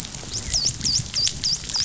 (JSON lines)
{"label": "biophony, dolphin", "recorder": "SoundTrap 500"}